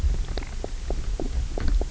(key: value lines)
label: biophony
recorder: SoundTrap 300